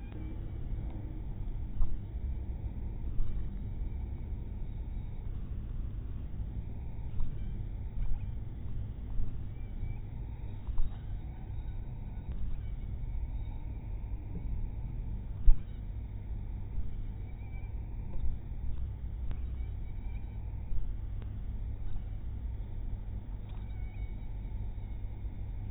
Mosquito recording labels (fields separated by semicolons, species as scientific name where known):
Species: mosquito; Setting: cup